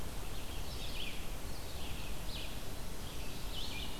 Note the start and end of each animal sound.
[0.00, 4.00] Red-eyed Vireo (Vireo olivaceus)

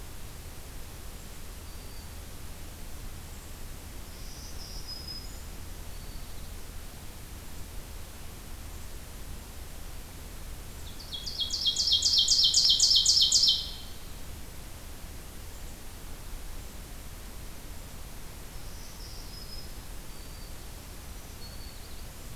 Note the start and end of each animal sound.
[1.38, 2.15] Black-throated Green Warbler (Setophaga virens)
[4.02, 6.54] Black-throated Green Warbler (Setophaga virens)
[10.74, 14.12] Black-throated Green Warbler (Setophaga virens)
[18.43, 20.57] Black-throated Green Warbler (Setophaga virens)
[21.03, 22.02] Black-throated Green Warbler (Setophaga virens)

